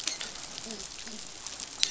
{"label": "biophony, dolphin", "recorder": "SoundTrap 500"}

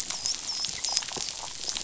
{"label": "biophony, dolphin", "recorder": "SoundTrap 500"}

